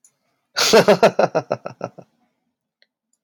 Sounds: Laughter